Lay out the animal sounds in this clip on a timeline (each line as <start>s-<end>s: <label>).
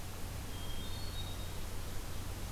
0.4s-1.7s: Hermit Thrush (Catharus guttatus)